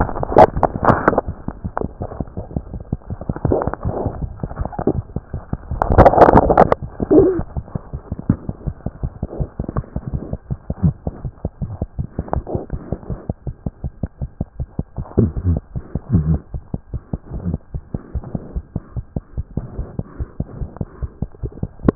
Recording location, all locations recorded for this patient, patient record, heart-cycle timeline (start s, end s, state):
aortic valve (AV)
aortic valve (AV)+mitral valve (MV)
#Age: Neonate
#Sex: Female
#Height: 50.0 cm
#Weight: 3.8 kg
#Pregnancy status: False
#Murmur: Absent
#Murmur locations: nan
#Most audible location: nan
#Systolic murmur timing: nan
#Systolic murmur shape: nan
#Systolic murmur grading: nan
#Systolic murmur pitch: nan
#Systolic murmur quality: nan
#Diastolic murmur timing: nan
#Diastolic murmur shape: nan
#Diastolic murmur grading: nan
#Diastolic murmur pitch: nan
#Diastolic murmur quality: nan
#Outcome: Abnormal
#Campaign: 2015 screening campaign
0.00	17.72	unannotated
17.72	17.81	S1
17.81	17.93	systole
17.93	17.99	S2
17.99	18.13	diastole
18.13	18.20	S1
18.20	18.33	systole
18.33	18.39	S2
18.39	18.53	diastole
18.53	18.62	S1
18.62	18.73	systole
18.73	18.80	S2
18.80	18.95	diastole
18.95	19.02	S1
19.02	19.13	systole
19.13	19.22	S2
19.22	19.35	diastole
19.35	19.44	S1
19.44	19.54	systole
19.54	19.63	S2
19.63	19.76	diastole
19.76	19.84	S1
19.84	19.96	systole
19.96	20.03	S2
20.03	20.17	diastole
20.17	20.26	S1
20.26	20.37	systole
20.37	20.45	S2
20.45	20.59	diastole
20.59	20.67	S1
20.67	20.78	systole
20.78	20.85	S2
20.85	21.01	diastole
21.01	21.09	S1
21.09	21.19	systole
21.19	21.27	S2
21.27	21.41	diastole
21.41	21.49	S1
21.49	21.61	systole
21.61	21.68	S2
21.68	21.82	diastole
21.82	21.90	S1
21.90	21.95	unannotated